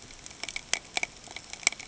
{"label": "ambient", "recorder": "HydroMoth"}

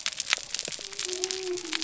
{"label": "biophony", "recorder": "SoundTrap 300"}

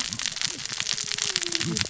{"label": "biophony, cascading saw", "recorder": "SoundTrap 600 or HydroMoth"}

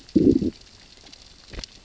{"label": "biophony, growl", "recorder": "SoundTrap 600 or HydroMoth"}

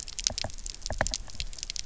{"label": "biophony, knock", "recorder": "SoundTrap 300"}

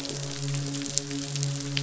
{"label": "biophony, midshipman", "recorder": "SoundTrap 500"}
{"label": "biophony, croak", "recorder": "SoundTrap 500"}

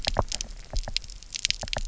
{"label": "biophony, knock", "recorder": "SoundTrap 300"}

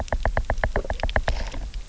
{"label": "biophony, knock", "recorder": "SoundTrap 300"}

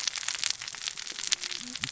{"label": "biophony, cascading saw", "recorder": "SoundTrap 600 or HydroMoth"}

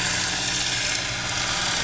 {"label": "anthrophony, boat engine", "recorder": "SoundTrap 500"}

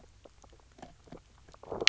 {"label": "biophony, low growl", "recorder": "SoundTrap 300"}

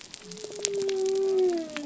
{"label": "biophony", "recorder": "SoundTrap 300"}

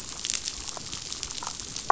{"label": "biophony, damselfish", "recorder": "SoundTrap 500"}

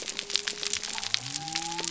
{"label": "biophony", "recorder": "SoundTrap 300"}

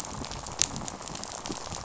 {"label": "biophony, rattle", "recorder": "SoundTrap 500"}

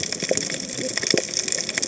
{"label": "biophony, cascading saw", "recorder": "HydroMoth"}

